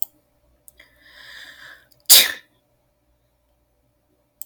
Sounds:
Sneeze